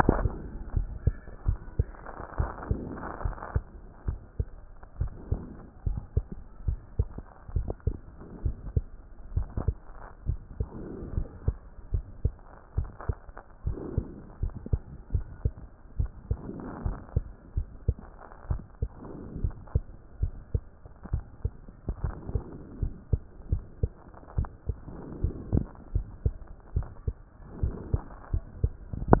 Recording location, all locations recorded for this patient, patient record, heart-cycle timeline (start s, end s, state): mitral valve (MV)
pulmonary valve (PV)+tricuspid valve (TV)+mitral valve (MV)
#Age: Child
#Sex: Female
#Height: 121.0 cm
#Weight: 20.9 kg
#Pregnancy status: False
#Murmur: Absent
#Murmur locations: nan
#Most audible location: nan
#Systolic murmur timing: nan
#Systolic murmur shape: nan
#Systolic murmur grading: nan
#Systolic murmur pitch: nan
#Systolic murmur quality: nan
#Diastolic murmur timing: nan
#Diastolic murmur shape: nan
#Diastolic murmur grading: nan
#Diastolic murmur pitch: nan
#Diastolic murmur quality: nan
#Outcome: Normal
#Campaign: 2014 screening campaign
0.18	0.20	systole
0.20	0.32	S2
0.32	0.74	diastole
0.74	0.88	S1
0.88	1.04	systole
1.04	1.14	S2
1.14	1.46	diastole
1.46	1.58	S1
1.58	1.78	systole
1.78	1.88	S2
1.88	2.38	diastole
2.38	2.50	S1
2.50	2.68	systole
2.68	2.80	S2
2.80	3.24	diastole
3.24	3.36	S1
3.36	3.54	systole
3.54	3.64	S2
3.64	4.06	diastole
4.06	4.18	S1
4.18	4.38	systole
4.38	4.48	S2
4.48	5.00	diastole
5.00	5.12	S1
5.12	5.30	systole
5.30	5.40	S2
5.40	5.86	diastole
5.86	6.00	S1
6.00	6.16	systole
6.16	6.24	S2
6.24	6.66	diastole
6.66	6.78	S1
6.78	6.98	systole
6.98	7.08	S2
7.08	7.54	diastole
7.54	7.68	S1
7.68	7.86	systole
7.86	7.96	S2
7.96	8.44	diastole
8.44	8.56	S1
8.56	8.74	systole
8.74	8.84	S2
8.84	9.34	diastole
9.34	9.48	S1
9.48	9.66	systole
9.66	9.76	S2
9.76	10.26	diastole
10.26	10.38	S1
10.38	10.58	systole
10.58	10.68	S2
10.68	11.14	diastole
11.14	11.26	S1
11.26	11.46	systole
11.46	11.56	S2
11.56	11.92	diastole
11.92	12.04	S1
12.04	12.24	systole
12.24	12.34	S2
12.34	12.76	diastole
12.76	12.88	S1
12.88	13.08	systole
13.08	13.16	S2
13.16	13.66	diastole
13.66	13.78	S1
13.78	13.96	systole
13.96	14.06	S2
14.06	14.42	diastole
14.42	14.54	S1
14.54	14.72	systole
14.72	14.80	S2
14.80	15.12	diastole
15.12	15.24	S1
15.24	15.44	systole
15.44	15.54	S2
15.54	15.98	diastole
15.98	16.10	S1
16.10	16.30	systole
16.30	16.38	S2
16.38	16.84	diastole
16.84	16.96	S1
16.96	17.14	systole
17.14	17.24	S2
17.24	17.56	diastole
17.56	17.68	S1
17.68	17.86	systole
17.86	17.96	S2
17.96	18.48	diastole
18.48	18.62	S1
18.62	18.80	systole
18.80	18.90	S2
18.90	19.40	diastole
19.40	19.54	S1
19.54	19.74	systole
19.74	19.84	S2
19.84	20.20	diastole
20.20	20.32	S1
20.32	20.52	systole
20.52	20.62	S2
20.62	21.12	diastole
21.12	21.24	S1
21.24	21.44	systole
21.44	21.52	S2
21.52	22.02	diastole
22.02	22.14	S1
22.14	22.32	systole
22.32	22.42	S2
22.42	22.80	diastole
22.80	22.92	S1
22.92	23.12	systole
23.12	23.20	S2
23.20	23.50	diastole
23.50	23.62	S1
23.62	23.82	systole
23.82	23.92	S2
23.92	24.36	diastole
24.36	24.48	S1
24.48	24.68	systole
24.68	24.76	S2
24.76	25.22	diastole
25.22	25.34	S1
25.34	25.52	systole
25.52	25.66	S2
25.66	25.94	diastole
25.94	26.06	S1
26.06	26.24	systole
26.24	26.34	S2
26.34	26.74	diastole
26.74	26.88	S1
26.88	27.06	systole
27.06	27.16	S2
27.16	27.62	diastole
27.62	27.74	S1
27.74	27.92	systole
27.92	28.02	S2
28.02	28.32	diastole
28.32	28.44	S1
28.44	28.62	systole
28.62	28.72	S2
28.72	29.04	diastole
29.04	29.20	S1